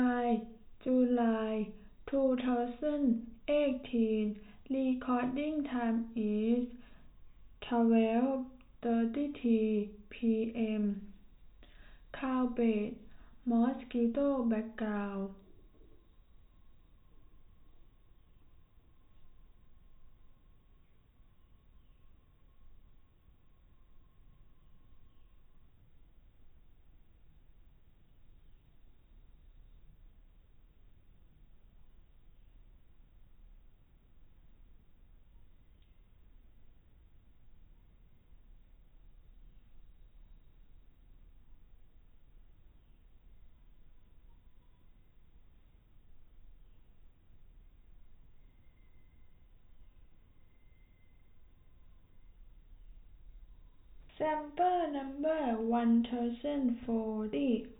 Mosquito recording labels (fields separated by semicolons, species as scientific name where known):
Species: no mosquito; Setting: cup